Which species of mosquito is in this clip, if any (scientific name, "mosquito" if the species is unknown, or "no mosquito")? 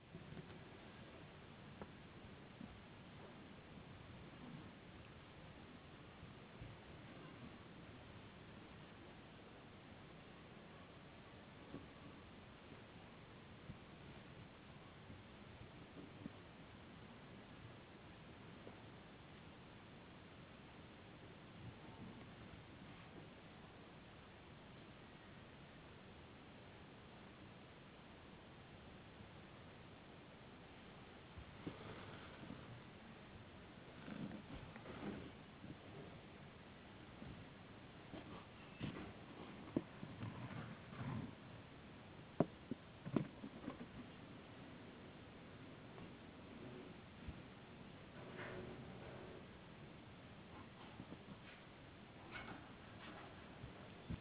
no mosquito